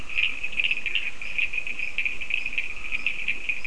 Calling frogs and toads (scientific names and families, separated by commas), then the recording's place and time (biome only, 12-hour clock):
Leptodactylus latrans (Leptodactylidae), Sphaenorhynchus surdus (Hylidae), Scinax perereca (Hylidae)
Atlantic Forest, 4:00am